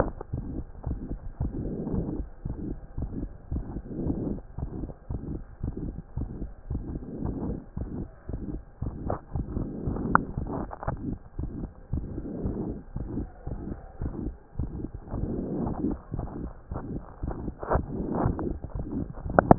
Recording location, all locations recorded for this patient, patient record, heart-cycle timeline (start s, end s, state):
mitral valve (MV)
aortic valve (AV)+pulmonary valve (PV)+tricuspid valve (TV)+mitral valve (MV)
#Age: Child
#Sex: Female
#Height: 121.0 cm
#Weight: 28.5 kg
#Pregnancy status: False
#Murmur: Present
#Murmur locations: aortic valve (AV)+mitral valve (MV)+pulmonary valve (PV)+tricuspid valve (TV)
#Most audible location: pulmonary valve (PV)
#Systolic murmur timing: Holosystolic
#Systolic murmur shape: Plateau
#Systolic murmur grading: III/VI or higher
#Systolic murmur pitch: High
#Systolic murmur quality: Blowing
#Diastolic murmur timing: nan
#Diastolic murmur shape: nan
#Diastolic murmur grading: nan
#Diastolic murmur pitch: nan
#Diastolic murmur quality: nan
#Outcome: Abnormal
#Campaign: 2014 screening campaign
0.00	0.86	unannotated
0.86	1.00	S1
1.00	1.10	systole
1.10	1.18	S2
1.18	1.40	diastole
1.40	1.52	S1
1.52	1.60	systole
1.60	1.72	S2
1.72	1.92	diastole
1.92	2.06	S1
2.06	2.16	systole
2.16	2.26	S2
2.26	2.46	diastole
2.46	2.56	S1
2.56	2.66	systole
2.66	2.76	S2
2.76	2.98	diastole
2.98	3.10	S1
3.10	3.20	systole
3.20	3.30	S2
3.30	3.52	diastole
3.52	3.64	S1
3.64	3.74	systole
3.74	3.82	S2
3.82	4.02	diastole
4.02	4.16	S1
4.16	4.26	systole
4.26	4.38	S2
4.38	4.60	diastole
4.60	4.70	S1
4.70	4.80	systole
4.80	4.90	S2
4.90	5.10	diastole
5.10	5.20	S1
5.20	5.30	systole
5.30	5.40	S2
5.40	5.62	diastole
5.62	5.74	S1
5.74	5.84	systole
5.84	5.94	S2
5.94	6.18	diastole
6.18	6.30	S1
6.30	6.40	systole
6.40	6.50	S2
6.50	6.70	diastole
6.70	6.82	S1
6.82	6.92	systole
6.92	7.00	S2
7.00	7.22	diastole
7.22	7.36	S1
7.36	7.46	systole
7.46	7.58	S2
7.58	7.78	diastole
7.78	7.88	S1
7.88	7.98	systole
7.98	8.08	S2
8.08	8.30	diastole
8.30	8.40	S1
8.40	8.52	systole
8.52	8.60	S2
8.60	8.82	diastole
8.82	8.94	S1
8.94	9.06	systole
9.06	9.16	S2
9.16	9.34	diastole
9.34	9.46	S1
9.46	9.56	systole
9.56	9.66	S2
9.66	9.86	diastole
9.86	10.00	S1
10.00	10.10	systole
10.10	10.22	S2
10.22	10.38	diastole
10.38	10.50	S1
10.50	10.58	systole
10.58	10.68	S2
10.68	10.88	diastole
10.88	10.98	S1
10.98	11.06	systole
11.06	11.16	S2
11.16	11.40	diastole
11.40	11.50	S1
11.50	11.60	systole
11.60	11.70	S2
11.70	11.94	diastole
11.94	12.06	S1
12.06	12.14	systole
12.14	12.24	S2
12.24	12.44	diastole
12.44	12.56	S1
12.56	12.66	systole
12.66	12.76	S2
12.76	13.00	diastole
13.00	13.08	S1
13.08	13.16	systole
13.16	13.28	S2
13.28	13.48	diastole
13.48	13.58	S1
13.58	13.68	systole
13.68	13.76	S2
13.76	14.02	diastole
14.02	14.14	S1
14.14	14.24	systole
14.24	14.34	S2
14.34	14.60	diastole
14.60	14.70	S1
14.70	14.80	systole
14.80	14.88	S2
14.88	15.16	diastole
15.16	15.30	S1
15.30	15.36	systole
15.36	15.46	S2
15.46	15.58	diastole
15.58	15.72	S1
15.72	15.84	systole
15.84	15.96	S2
15.96	16.16	diastole
16.16	16.28	S1
16.28	16.40	systole
16.40	16.52	S2
16.52	16.72	diastole
16.72	16.82	S1
16.82	16.92	systole
16.92	17.02	S2
17.02	17.24	diastole
17.24	19.58	unannotated